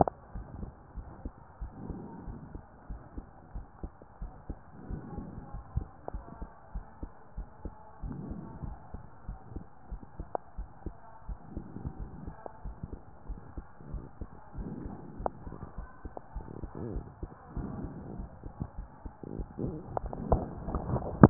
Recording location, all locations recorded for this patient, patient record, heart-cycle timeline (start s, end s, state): pulmonary valve (PV)
aortic valve (AV)+pulmonary valve (PV)+tricuspid valve (TV)
#Age: nan
#Sex: Female
#Height: nan
#Weight: nan
#Pregnancy status: True
#Murmur: Absent
#Murmur locations: nan
#Most audible location: nan
#Systolic murmur timing: nan
#Systolic murmur shape: nan
#Systolic murmur grading: nan
#Systolic murmur pitch: nan
#Systolic murmur quality: nan
#Diastolic murmur timing: nan
#Diastolic murmur shape: nan
#Diastolic murmur grading: nan
#Diastolic murmur pitch: nan
#Diastolic murmur quality: nan
#Outcome: Normal
#Campaign: 2015 screening campaign
0.00	0.34	unannotated
0.34	0.46	S1
0.46	0.60	systole
0.60	0.72	S2
0.72	0.96	diastole
0.96	1.06	S1
1.06	1.22	systole
1.22	1.34	S2
1.34	1.60	diastole
1.60	1.72	S1
1.72	1.86	systole
1.86	2.00	S2
2.00	2.24	diastole
2.24	2.36	S1
2.36	2.54	systole
2.54	2.64	S2
2.64	2.88	diastole
2.88	3.00	S1
3.00	3.16	systole
3.16	3.28	S2
3.28	3.54	diastole
3.54	3.66	S1
3.66	3.82	systole
3.82	3.92	S2
3.92	4.20	diastole
4.20	4.32	S1
4.32	4.48	systole
4.48	4.58	S2
4.58	4.86	diastole
4.86	5.00	S1
5.00	5.14	systole
5.14	5.28	S2
5.28	5.52	diastole
5.52	5.64	S1
5.64	5.76	systole
5.76	5.88	S2
5.88	6.12	diastole
6.12	6.24	S1
6.24	6.40	systole
6.40	6.48	S2
6.48	6.74	diastole
6.74	6.84	S1
6.84	7.02	systole
7.02	7.12	S2
7.12	7.38	diastole
7.38	7.48	S1
7.48	7.64	systole
7.64	7.74	S2
7.74	8.02	diastole
8.02	8.15	S1
8.15	8.28	systole
8.28	8.39	S2
8.39	8.64	diastole
8.64	8.78	S1
8.78	8.94	systole
8.94	9.04	S2
9.04	9.25	diastole
9.25	9.38	S1
9.38	9.52	systole
9.52	9.66	S2
9.66	9.90	diastole
9.90	10.00	S1
10.00	10.18	systole
10.18	10.30	S2
10.30	10.58	diastole
10.58	10.68	S1
10.68	10.86	systole
10.86	10.94	S2
10.94	11.28	diastole
11.28	11.38	S1
11.38	11.54	systole
11.54	11.64	S2
11.64	11.84	diastole
11.84	11.98	S1
11.98	12.22	systole
12.22	12.36	S2
12.36	12.64	diastole
12.64	12.76	S1
12.76	12.92	systole
12.92	13.02	S2
13.02	13.28	diastole
13.28	13.42	S1
13.42	13.56	systole
13.56	13.68	S2
13.68	13.90	diastole
13.90	14.04	S1
14.04	14.19	systole
14.19	14.32	S2
14.32	14.56	diastole
14.56	14.72	S1
14.72	14.84	systole
14.84	14.98	S2
14.98	15.18	diastole
15.18	15.30	S1
15.30	21.30	unannotated